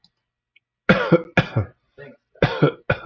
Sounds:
Cough